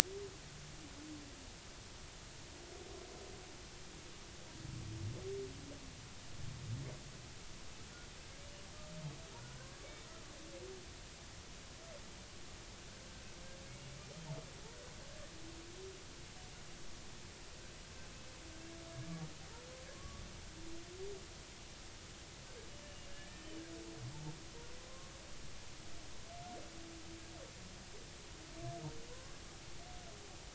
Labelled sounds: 9.8	10.1	humpback whale, 2.2 to 2.3 kHz
19.9	20.2	humpback whale, 1.0 to 1.2 kHz
23.1	23.5	humpback whale, 1.6 to 1.9 kHz

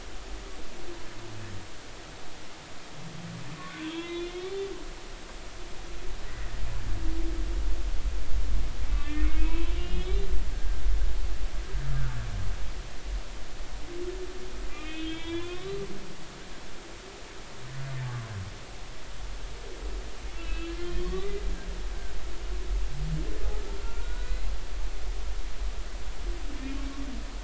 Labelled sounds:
3.8	4.4	humpback whale, 0.96 to 4.0 kHz
6.3	6.6	humpback whale, 1.8 to 2.0 kHz
8.9	10.8	humpback whale, 0.93 to 4.0 kHz
14.7	15.7	humpback whale, 1.8 to 3.8 kHz
16.2	16.8	humpback whale, 0.93 to 1.2 kHz
20.4	21.3	humpback whale, 1.0 to 3.4 kHz
23.8	24.5	humpback whale, 1.3 to 4.2 kHz

